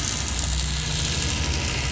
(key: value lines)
label: anthrophony, boat engine
recorder: SoundTrap 500